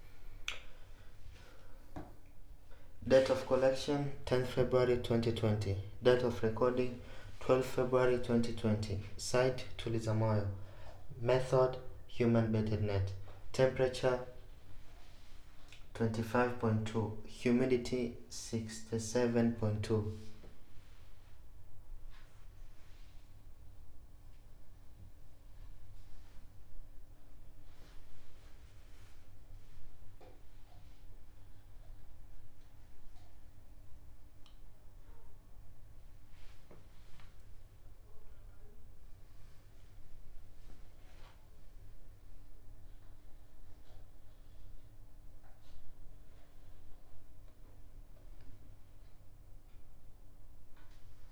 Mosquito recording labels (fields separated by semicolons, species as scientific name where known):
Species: no mosquito; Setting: cup